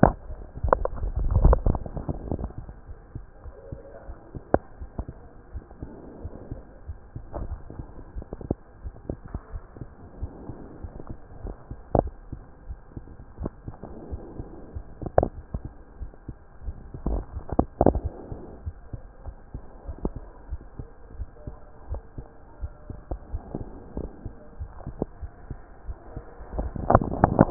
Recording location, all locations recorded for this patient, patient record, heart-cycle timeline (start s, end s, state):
aortic valve (AV)
aortic valve (AV)+pulmonary valve (PV)+tricuspid valve (TV)+mitral valve (MV)
#Age: Child
#Sex: Male
#Height: 127.0 cm
#Weight: 35.8 kg
#Pregnancy status: False
#Murmur: Absent
#Murmur locations: nan
#Most audible location: nan
#Systolic murmur timing: nan
#Systolic murmur shape: nan
#Systolic murmur grading: nan
#Systolic murmur pitch: nan
#Systolic murmur quality: nan
#Diastolic murmur timing: nan
#Diastolic murmur shape: nan
#Diastolic murmur grading: nan
#Diastolic murmur pitch: nan
#Diastolic murmur quality: nan
#Outcome: Normal
#Campaign: 2014 screening campaign
0.00	20.34	unannotated
20.34	20.50	diastole
20.50	20.60	S1
20.60	20.78	systole
20.78	20.88	S2
20.88	21.18	diastole
21.18	21.28	S1
21.28	21.46	systole
21.46	21.56	S2
21.56	21.90	diastole
21.90	22.02	S1
22.02	22.18	systole
22.18	22.28	S2
22.28	22.62	diastole
22.62	22.72	S1
22.72	22.88	systole
22.88	22.98	S2
22.98	23.32	diastole
23.32	23.42	S1
23.42	23.56	systole
23.56	23.64	S2
23.64	23.96	diastole
23.96	24.08	S1
24.08	24.24	systole
24.24	24.34	S2
24.34	24.60	diastole
24.60	24.70	S1
24.70	24.88	systole
24.88	24.96	S2
24.96	25.22	diastole
25.22	25.32	S1
25.32	25.50	systole
25.50	25.58	S2
25.58	25.88	diastole
25.88	25.98	S1
25.98	26.14	systole
26.14	26.22	S2
26.22	26.54	diastole
26.54	27.50	unannotated